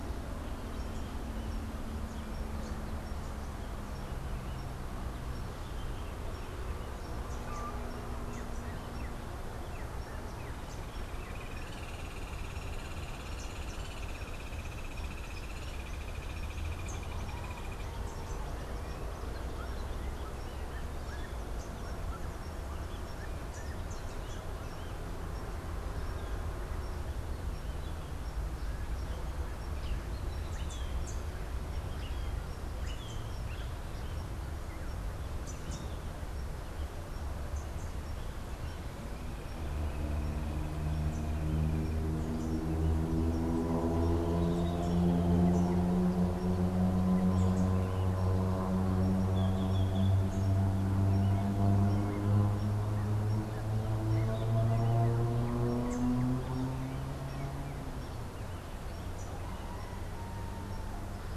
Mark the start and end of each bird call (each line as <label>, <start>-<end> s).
Hoffmann's Woodpecker (Melanerpes hoffmannii), 10.8-18.0 s
Melodious Blackbird (Dives dives), 29.0-34.1 s
Rufous-naped Wren (Campylorhynchus rufinucha), 53.1-57.8 s